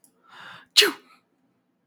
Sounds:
Sneeze